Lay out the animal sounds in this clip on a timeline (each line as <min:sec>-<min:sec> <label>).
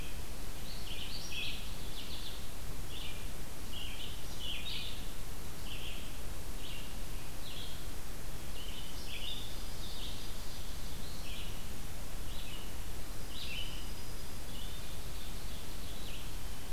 0:00.0-0:16.7 Red-eyed Vireo (Vireo olivaceus)
0:01.6-0:02.4 American Goldfinch (Spinus tristis)
0:09.1-0:10.2 Dark-eyed Junco (Junco hyemalis)
0:09.8-0:11.4 Ovenbird (Seiurus aurocapilla)
0:13.0-0:14.6 Dark-eyed Junco (Junco hyemalis)
0:14.2-0:16.4 Ovenbird (Seiurus aurocapilla)